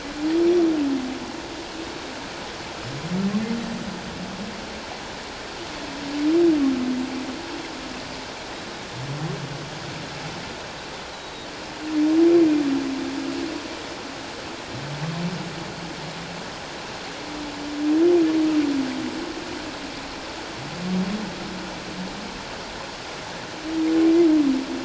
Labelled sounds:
11.1	11.5	Pacific white-sided dolphin, 3.7 to 4.0 kHz

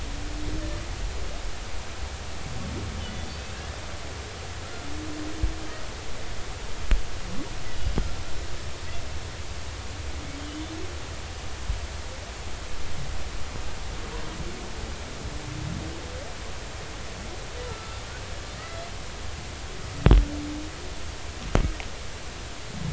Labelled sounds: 3.0	3.7	humpback whale, 2.5 to 3.2 kHz
7.9	8.1	humpback whale, 4.9 to 5.4 kHz
17.7	18.0	humpback whale, 1.2 to 1.4 kHz
18.6	18.8	humpback whale, 1.8 to 2.0 kHz

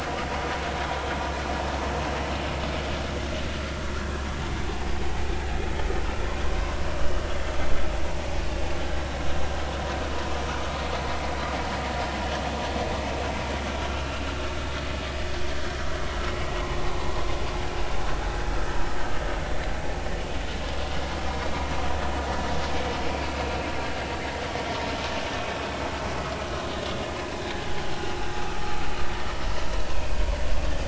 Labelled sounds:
1.1	1.4	vessel noise, 0.86 to 0.93 kHz
13.9	14.2	vessel noise, 2.6 to 3.0 kHz
16.9	17.1	vessel noise, 0.93 to 1.1 kHz

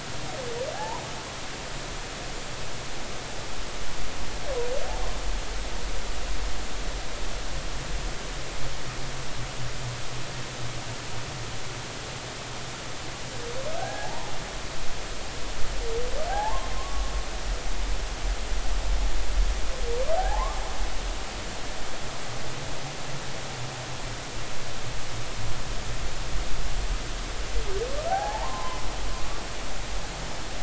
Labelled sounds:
0.7	1.1	humpback whale, 0.80 to 1.1 kHz
13.8	14.3	humpback whale, 0.80 to 1.7 kHz
16.3	17.1	humpback whale, 0.80 to 1.2 kHz
20.2	20.6	humpback whale, 0.80 to 1.2 kHz
28.1	28.8	humpback whale, 0.80 to 1.8 kHz

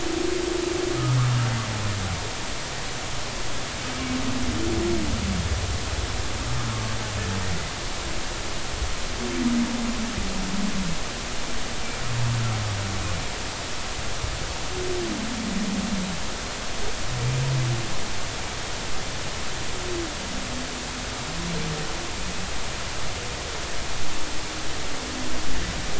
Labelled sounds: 6.7	7.0	humpback whale, 1.1 to 1.2 kHz

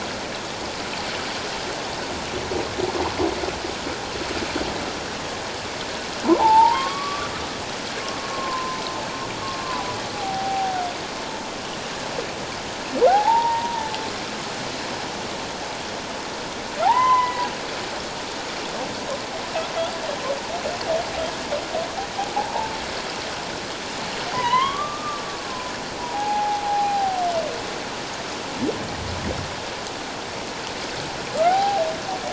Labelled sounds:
6.3	7.3	humpback whale, 0.78 to 1.3 kHz
8.3	8.8	humpback whale, 0.97 to 1.1 kHz
10.1	10.8	humpback whale, 0.78 to 0.84 kHz
13.1	13.9	humpback whale, 0.78 to 1.0 kHz
16.8	17.4	humpback whale, 0.78 to 2.1 kHz
22.4	22.7	humpback whale, 0.78 to 1.0 kHz
24.3	25.5	humpback whale, 0.91 to 3.4 kHz
26.1	27.2	humpback whale, 0.78 to 0.91 kHz
31.5	31.8	humpback whale, 0.78 to 0.88 kHz

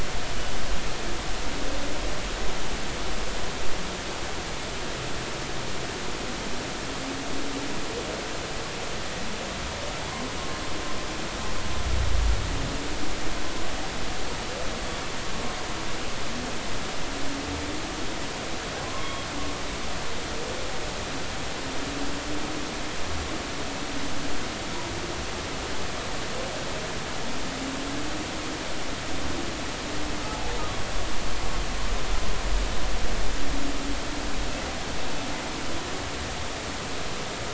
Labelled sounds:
18.8	19.2	humpback whale, 0.99 to 1.2 kHz

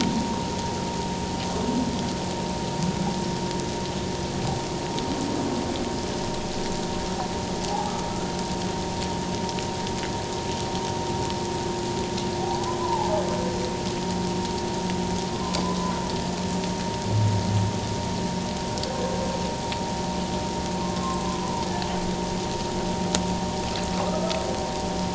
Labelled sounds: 7.6	7.9	humpback whale, 0.78 to 0.91 kHz
12.5	13.2	humpback whale, 0.81 to 1.1 kHz
15.3	16.0	humpback whale, 0.97 to 1.1 kHz
20.8	21.7	humpback whale, 0.88 to 1.1 kHz
24.1	24.4	humpback whale, 1.2 to 1.4 kHz

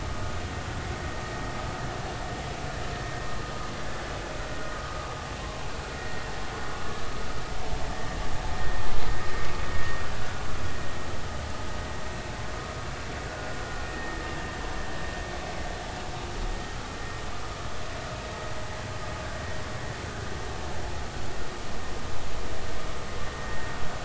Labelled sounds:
6.0	6.2	vessel noise, 1.8 to 2.0 kHz
10.2	10.4	vessel noise, 1.4 to 1.5 kHz
13.9	14.2	vessel noise, 1.7 to 1.9 kHz
23.4	23.7	vessel noise, 1.8 to 2.0 kHz

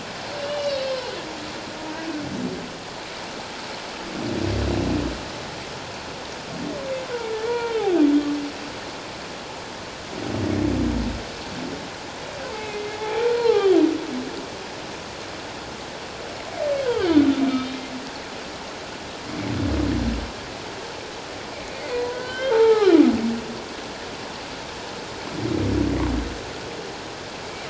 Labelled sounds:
0.4	1.1	humpback whale, 2.8 to 4.7 kHz
7.3	7.8	humpback whale, 0.88 to 2.4 kHz
12.5	13.7	humpback whale, 0.78 to 2.7 kHz
16.9	17.8	humpback whale, 2.9 to 3.8 kHz
21.9	23.0	humpback whale, 0.78 to 3.3 kHz

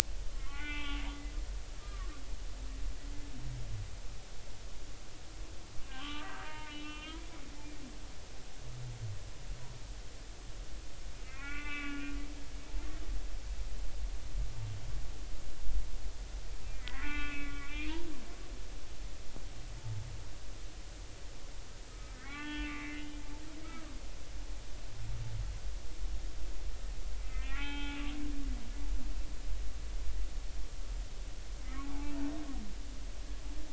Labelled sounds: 0.3	1.1	humpback whale, 0.80 to 3.6 kHz
1.7	2.1	humpback whale, 1.0 to 1.4 kHz
5.9	7.2	humpback whale, 0.86 to 3.9 kHz
11.2	12.0	humpback whale, 1.1 to 3.6 kHz
16.7	18.0	humpback whale, 1.1 to 3.3 kHz
21.9	23.0	humpback whale, 0.83 to 3.3 kHz
27.2	28.0	humpback whale, 0.80 to 3.8 kHz
31.8	32.1	humpback whale, 0.80 to 0.96 kHz

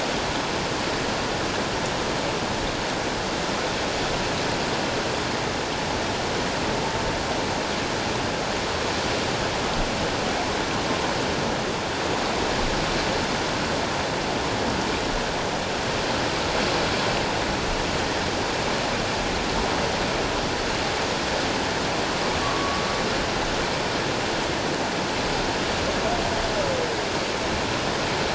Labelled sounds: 22.4	22.8	humpback whale, 1.0 to 1.2 kHz

